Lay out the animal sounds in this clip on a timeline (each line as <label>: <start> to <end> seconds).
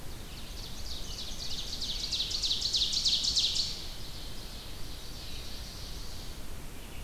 Ovenbird (Seiurus aurocapilla): 0.0 to 6.2 seconds
Scarlet Tanager (Piranga olivacea): 0.9 to 2.6 seconds
Black-throated Blue Warbler (Setophaga caerulescens): 5.1 to 6.2 seconds